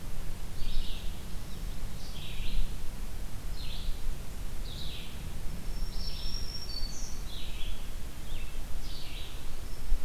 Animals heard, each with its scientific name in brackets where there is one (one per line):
Red-eyed Vireo (Vireo olivaceus)
Black-throated Green Warbler (Setophaga virens)